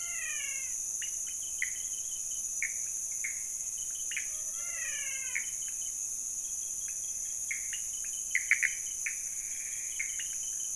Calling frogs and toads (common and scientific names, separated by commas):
menwig frog (Physalaemus albonotatus), Pithecopus azureus, pointedbelly frog (Leptodactylus podicipinus)